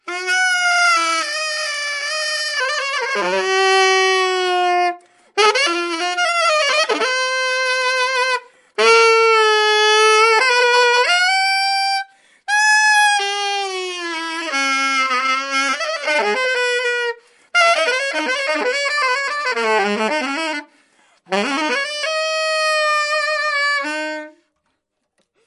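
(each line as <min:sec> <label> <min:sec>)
0:00.1 A saxophone is being played loudly with screeching tones. 0:24.3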